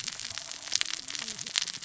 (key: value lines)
label: biophony, cascading saw
recorder: SoundTrap 600 or HydroMoth